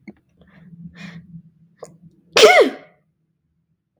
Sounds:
Sneeze